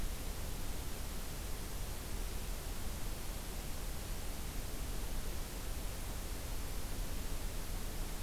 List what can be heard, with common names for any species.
forest ambience